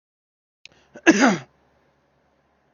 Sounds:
Cough